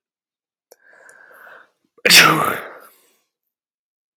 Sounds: Sneeze